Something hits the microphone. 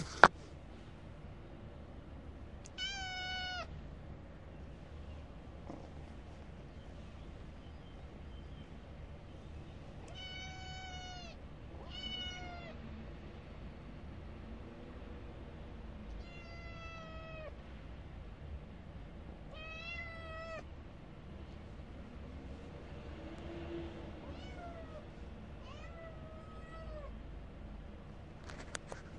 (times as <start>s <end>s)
0.1s 0.4s, 28.5s 29.2s